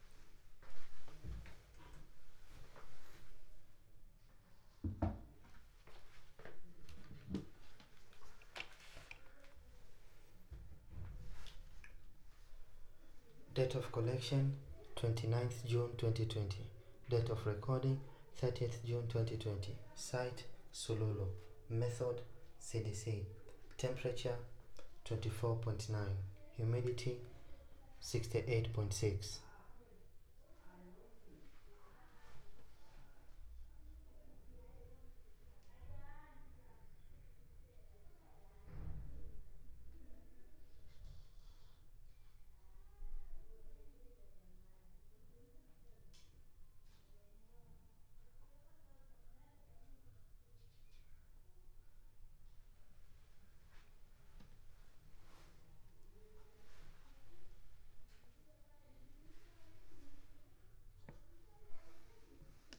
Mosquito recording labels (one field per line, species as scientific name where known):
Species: no mosquito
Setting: cup